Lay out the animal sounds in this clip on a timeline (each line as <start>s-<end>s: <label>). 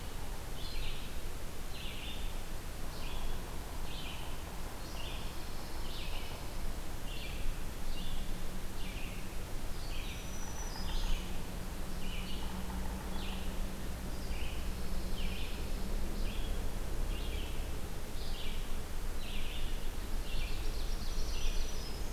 0.4s-22.1s: Red-eyed Vireo (Vireo olivaceus)
4.9s-6.9s: Pine Warbler (Setophaga pinus)
9.5s-11.5s: Black-throated Green Warbler (Setophaga virens)
10.4s-13.4s: Yellow-bellied Sapsucker (Sphyrapicus varius)
14.2s-16.2s: Pine Warbler (Setophaga pinus)
20.6s-22.1s: Black-throated Green Warbler (Setophaga virens)